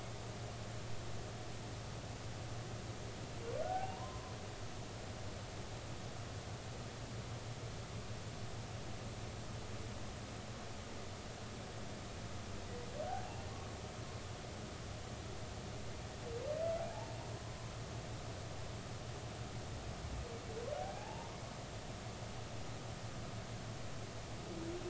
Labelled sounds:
3.6	4.4	humpback whale, 0.80 to 1.6 kHz
13.1	13.4	humpback whale, 0.80 to 0.96 kHz
20.8	21.3	humpback whale, 0.80 to 0.96 kHz

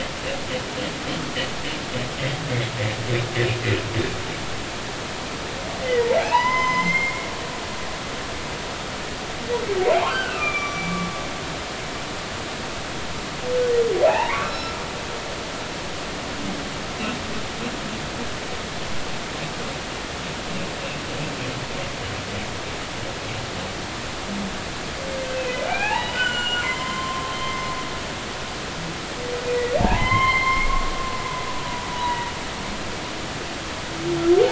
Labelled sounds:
5.8	7.3	humpback whale, 0.80 to 6.2 kHz
9.9	11.0	humpback whale, 0.80 to 5.9 kHz
14.1	14.7	humpback whale, 0.80 to 5.4 kHz
25.7	27.6	humpback whale, 0.80 to 7.3 kHz
29.5	30.7	humpback whale, 0.80 to 3.3 kHz
31.9	32.3	humpback whale, 0.90 to 1.0 kHz

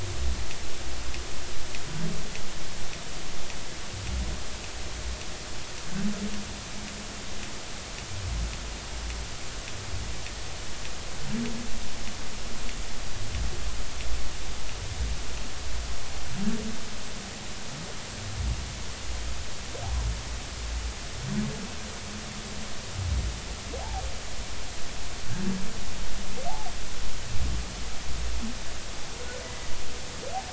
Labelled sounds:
23.8	24.0	humpback whale, 0.80 to 1.0 kHz
29.4	29.7	humpback whale, 1.9 to 2.1 kHz

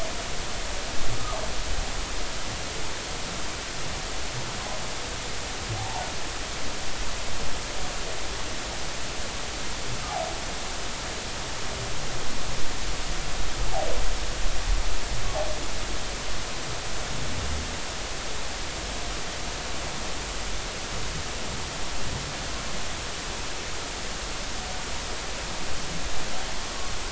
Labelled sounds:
5.8	6.0	humpback whale, 0.80 to 0.96 kHz

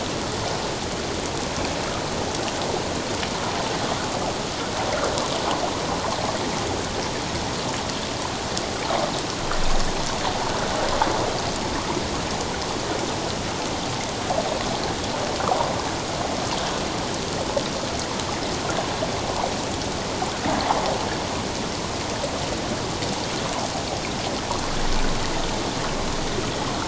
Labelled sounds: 15.4	15.7	water noise, 0.91 to 1.4 kHz

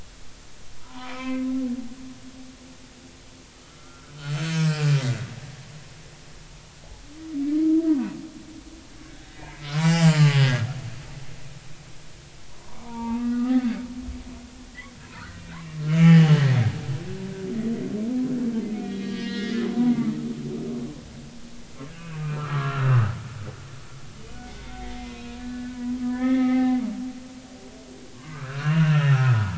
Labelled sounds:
0.8	1.5	humpback whale, 0.90 to 2.7 kHz
3.7	5.0	humpback whale, 1.2 to 5.2 kHz
7.8	8.1	humpback whale, 1.4 to 1.7 kHz
9.1	10.6	humpback whale, 0.80 to 7.5 kHz
12.5	13.8	humpback whale, 0.86 to 2.7 kHz
15.0	16.3	humpback whale, 0.80 to 3.2 kHz
18.7	20.0	humpback whale, 0.93 to 4.5 kHz
21.9	23.1	humpback whale, 1.0 to 2.9 kHz
24.4	25.8	humpback whale, 1.4 to 3.7 kHz
26.0	26.8	humpback whale, 0.80 to 3.5 kHz
28.1	29.5	humpback whale, 0.83 to 2.9 kHz

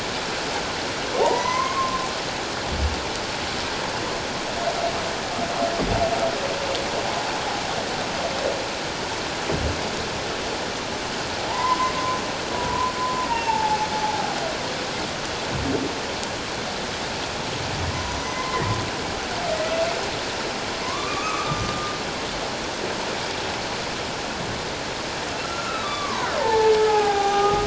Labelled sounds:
1.2	2.1	humpback whale, 0.78 to 6.5 kHz
11.5	11.9	humpback whale, 0.81 to 2.1 kHz
12.5	13.9	humpback whale, 0.81 to 2.8 kHz
17.9	18.7	humpback whale, 0.94 to 2.1 kHz
20.8	21.9	humpback whale, 0.97 to 2.6 kHz
25.4	27.6	humpback whale, 0.78 to 6.2 kHz

